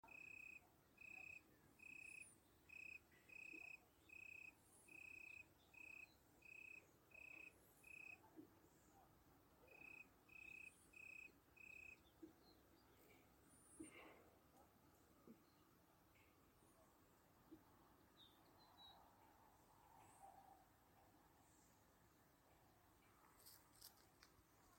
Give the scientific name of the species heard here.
Oecanthus pellucens